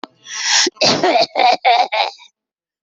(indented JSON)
{
  "expert_labels": [
    {
      "quality": "ok",
      "cough_type": "unknown",
      "dyspnea": false,
      "wheezing": false,
      "stridor": false,
      "choking": false,
      "congestion": false,
      "nothing": true,
      "diagnosis": "healthy cough",
      "severity": "pseudocough/healthy cough"
    }
  ]
}